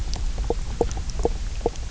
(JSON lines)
{"label": "biophony, knock croak", "recorder": "SoundTrap 300"}